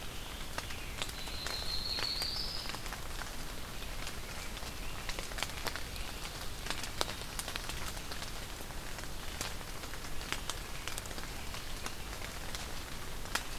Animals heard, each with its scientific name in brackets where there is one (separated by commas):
Yellow-rumped Warbler (Setophaga coronata)